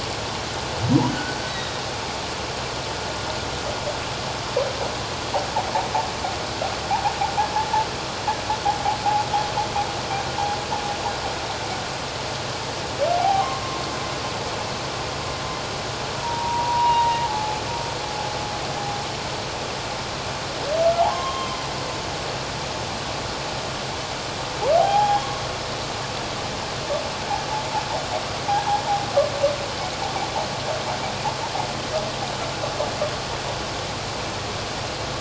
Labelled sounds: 1.1	1.7	humpback whale, 1.4 to 2.0 kHz
13.2	13.6	humpback whale, 0.78 to 1.2 kHz
16.2	17.6	humpback whale, 0.78 to 2.9 kHz
21.0	21.6	humpback whale, 0.78 to 3.2 kHz
24.8	25.4	humpback whale, 0.78 to 3.4 kHz

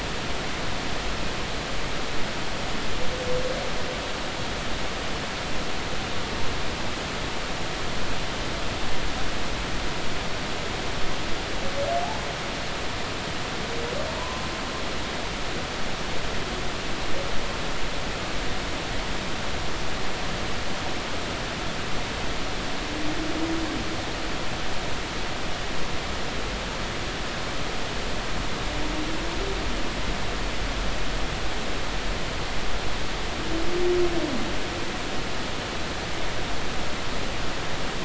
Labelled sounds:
12.0	12.3	humpback whale, 0.80 to 1.1 kHz
14.2	14.4	humpback whale, 0.86 to 1.1 kHz

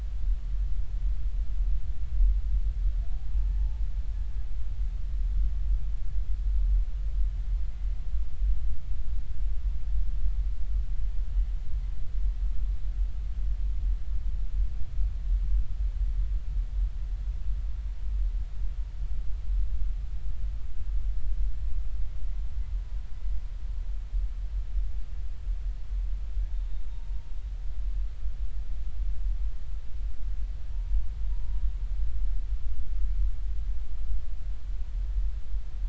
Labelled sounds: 3.3	3.8	humpback whale, 0.80 to 0.93 kHz
26.5	27.1	humpback whale, 0.90 to 3.7 kHz
30.7	31.6	humpback whale, 0.86 to 1.0 kHz

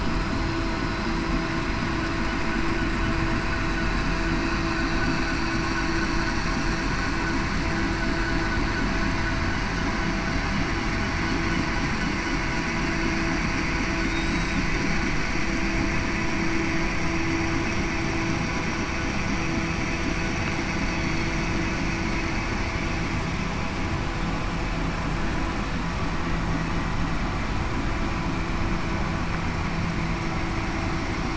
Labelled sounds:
14.0	14.6	killer whale, southern resident, 3.6 to 7.8 kHz

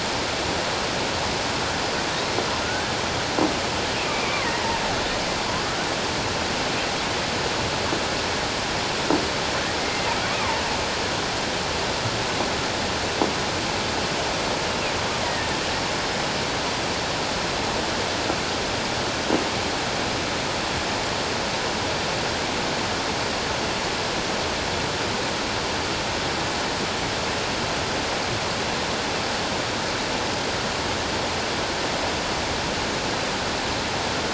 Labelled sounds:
2.6	3.0	killer whale, offshore, 1.4 to 1.7 kHz
4.1	4.4	killer whale, offshore, 2.2 to 2.4 kHz
9.8	10.6	killer whale, offshore, 0.84 to 2.2 kHz
15.2	15.5	killer whale, offshore, 1.8 to 2.1 kHz

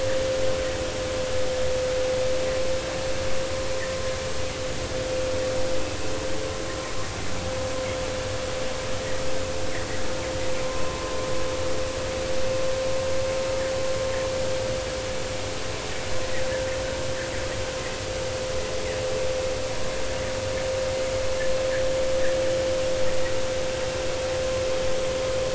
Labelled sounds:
10.6	11.2	vessel noise, 0.99 to 1.1 kHz

